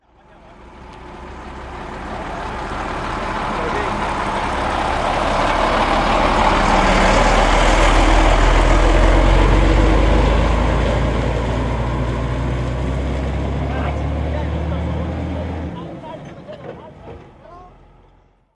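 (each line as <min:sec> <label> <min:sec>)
0:00.0 People are talking in the background with muffled voices. 0:04.5
0:00.0 A slow, heavy, deep, and muffled truck passes by with fading engine sounds. 0:18.5
0:13.5 People are arguing and speaking loudly. 0:18.1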